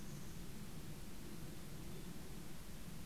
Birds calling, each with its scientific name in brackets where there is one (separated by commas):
Mountain Chickadee (Poecile gambeli)